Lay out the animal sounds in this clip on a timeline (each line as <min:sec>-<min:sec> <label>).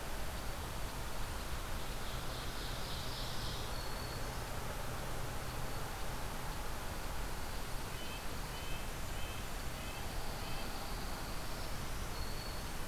0:01.7-0:03.7 Ovenbird (Seiurus aurocapilla)
0:03.3-0:04.6 Black-throated Green Warbler (Setophaga virens)
0:06.9-0:08.8 Dark-eyed Junco (Junco hyemalis)
0:07.9-0:10.8 Red-breasted Nuthatch (Sitta canadensis)
0:09.7-0:11.6 Dark-eyed Junco (Junco hyemalis)
0:11.4-0:12.9 Black-throated Green Warbler (Setophaga virens)